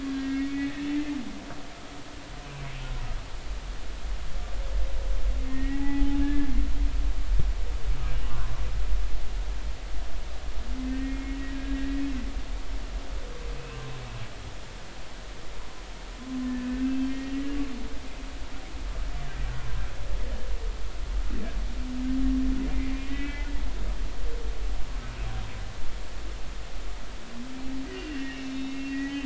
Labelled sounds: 0.1	1.2	humpback whale, 1.6 to 2.3 kHz
5.5	6.5	humpback whale, 0.80 to 2.0 kHz
8.2	8.5	humpback whale, 0.99 to 1.2 kHz
10.8	11.6	humpback whale, 1.8 to 2.2 kHz
16.5	17.3	humpback whale, 1.5 to 2.7 kHz
23.1	23.5	humpback whale, 1.9 to 2.4 kHz
27.9	29.2	humpback whale, 1.7 to 4.3 kHz

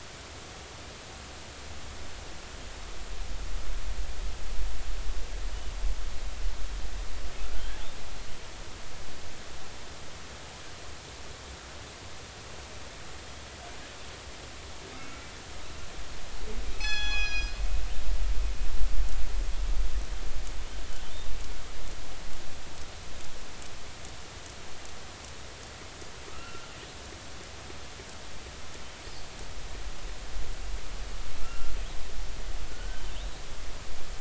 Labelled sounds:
14.9	15.3	killer whale, northern resident, 1.2 to 2.3 kHz
16.7	17.5	killer whale, northern resident, G clan, call N24ii, 0.80 to 7.7 kHz
26.3	26.7	killer whale, northern resident, A clan, AB subclan, call N16ii, 1.2 to 1.5 kHz
31.4	31.7	killer whale, northern resident, A clan, AB subclan, call N16ii, 1.3 to 1.4 kHz
32.7	33.0	killer whale, northern resident, A clan, AB subclan, call N16ii, 1.4 to 1.6 kHz

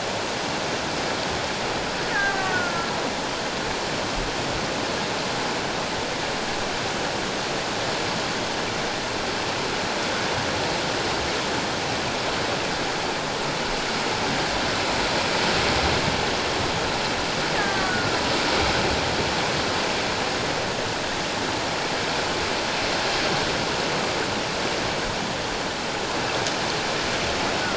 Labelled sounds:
2.1	2.9	killer whale, Bigg's (transient), 1.0 to 1.9 kHz
17.6	18.1	killer whale, Bigg's (transient), 1.1 to 1.9 kHz

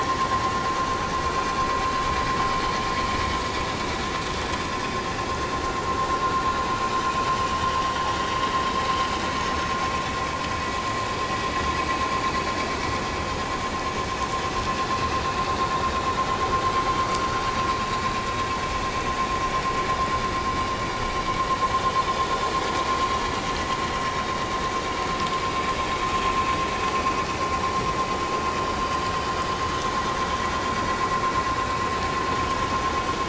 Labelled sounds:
9.4	9.7	vessel noise, 5.3 to 5.5 kHz

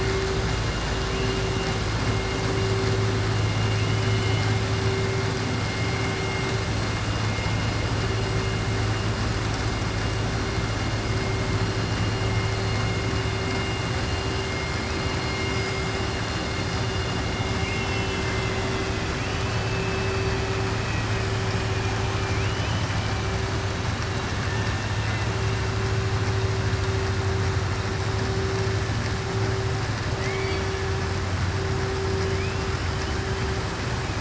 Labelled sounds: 3.7	4.5	killer whale, southern resident, 2.2 to 3.4 kHz
17.5	19.1	killer whale, southern resident, 1.6 to 4.0 kHz
22.1	23.1	killer whale, southern resident, 2.2 to 3.1 kHz
30.1	30.8	killer whale, southern resident, 1.7 to 4.6 kHz

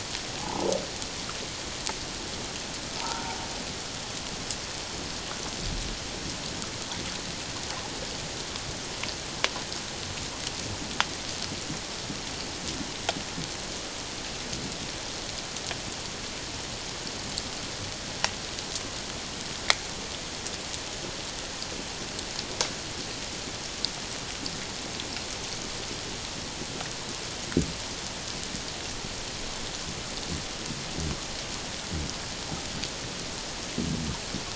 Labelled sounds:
0.4	0.7	humpback whale, 0.78 to 1.1 kHz
3.0	3.4	humpback whale, 0.78 to 1.5 kHz

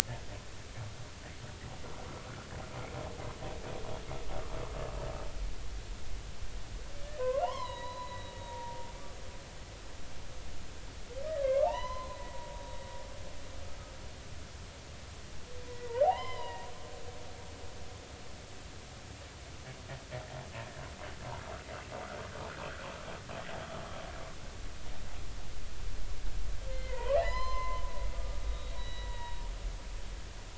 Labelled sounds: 7.2	8.9	humpback whale, 0.80 to 4.4 kHz
11.3	12.2	humpback whale, 0.80 to 4.1 kHz
15.7	16.7	humpback whale, 0.80 to 5.2 kHz
26.7	27.8	humpback whale, 0.80 to 6.2 kHz
28.1	29.4	humpback whale, 0.90 to 4.0 kHz

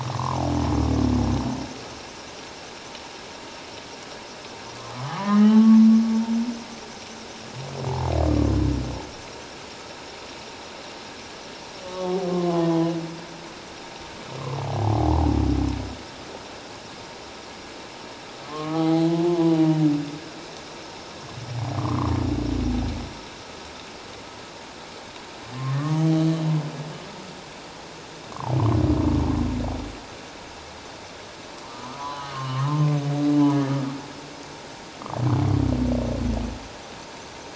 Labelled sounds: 0.1	0.4	humpback whale, 0.84 to 1.2 kHz
5.0	5.9	humpback whale, 0.78 to 3.1 kHz
11.8	12.9	humpback whale, 0.97 to 1.2 kHz
18.5	19.5	humpback whale, 0.78 to 1.2 kHz
21.8	22.1	humpback whale, 0.97 to 1.2 kHz
25.8	26.0	humpback whale, 1.0 to 1.2 kHz
28.3	28.6	humpback whale, 0.78 to 1.2 kHz
31.9	32.7	humpback whale, 0.94 to 4.1 kHz

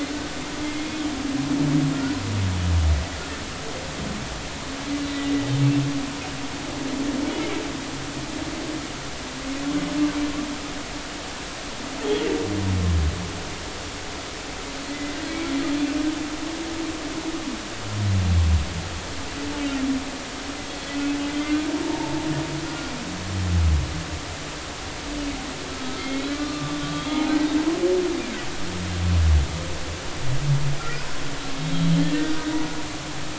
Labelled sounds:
14.8	15.5	humpback whale, 1.9 to 2.4 kHz
21.8	22.3	humpback whale, 0.83 to 0.99 kHz
25.7	27.3	humpback whale, 0.80 to 3.6 kHz
30.8	31.1	humpback whale, 1.3 to 1.5 kHz

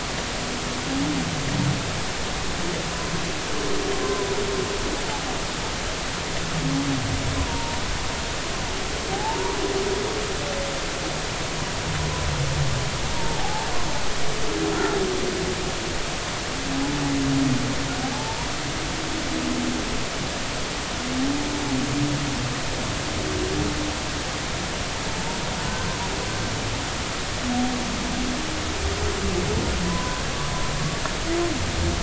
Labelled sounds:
4.0	4.3	humpback whale, 0.96 to 1.1 kHz
7.4	7.8	humpback whale, 0.86 to 1.1 kHz
9.1	9.4	humpback whale, 0.80 to 1.0 kHz
13.1	13.7	humpback whale, 0.80 to 0.99 kHz
18.1	18.5	humpback whale, 0.80 to 1.0 kHz
29.8	30.3	humpback whale, 0.96 to 1.7 kHz

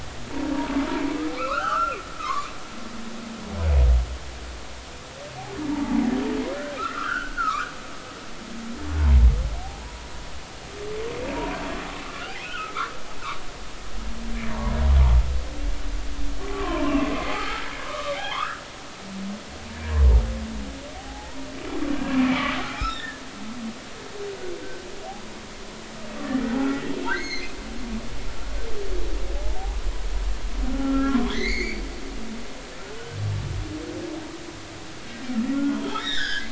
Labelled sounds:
1.4	2.5	humpback whale, 0.99 to 3.2 kHz
5.7	7.7	humpback whale, 0.80 to 3.3 kHz
9.0	9.3	humpback whale, 0.83 to 1.1 kHz
11.3	11.6	humpback whale, 0.90 to 1.0 kHz
12.0	12.9	humpback whale, 0.99 to 2.7 kHz
16.5	18.6	humpback whale, 0.80 to 3.6 kHz
20.9	21.5	humpback whale, 0.80 to 1.0 kHz
21.9	23.1	humpback whale, 1.5 to 4.1 kHz
23.9	24.2	humpback whale, 1.6 to 1.9 kHz
27.1	27.5	humpback whale, 1.9 to 6.6 kHz
29.4	29.6	humpback whale, 0.80 to 0.93 kHz
30.7	33.2	humpback whale, 1.3 to 4.8 kHz
35.5	36.5	humpback whale, 1.2 to 5.8 kHz

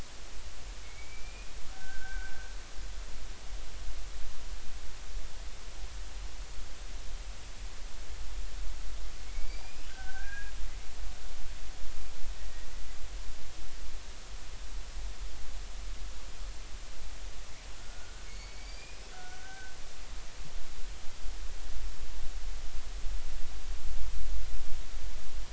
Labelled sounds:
0.8	2.5	killer whale, Bigg's (transient), 1.4 to 2.5 kHz
9.3	10.5	killer whale, Bigg's (transient), 1.4 to 5.2 kHz
12.4	12.7	killer whale, Bigg's (transient), 1.9 to 2.0 kHz
17.8	19.8	killer whale, Bigg's (transient), 1.3 to 5.3 kHz

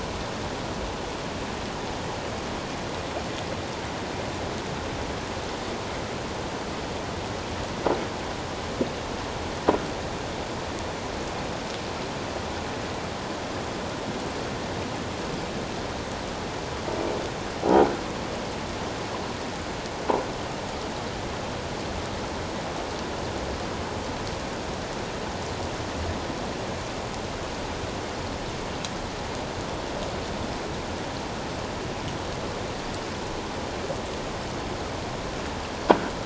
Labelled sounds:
17.7	18.0	croaking sound likely from a nearby submerged object, 1.4 to 1.6 kHz

